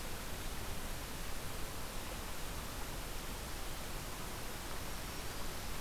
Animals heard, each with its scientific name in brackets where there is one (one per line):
Black-throated Green Warbler (Setophaga virens)